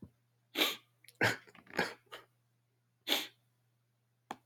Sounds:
Sigh